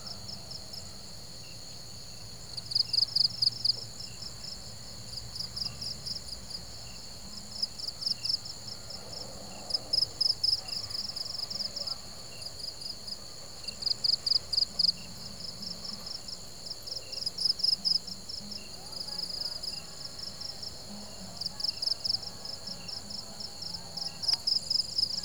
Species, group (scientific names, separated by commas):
Loxoblemmus arietulus, Orthoptera